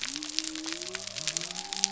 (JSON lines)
{"label": "biophony", "recorder": "SoundTrap 300"}